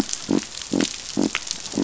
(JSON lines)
{"label": "biophony", "recorder": "SoundTrap 500"}